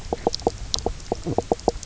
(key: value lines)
label: biophony, knock croak
recorder: SoundTrap 300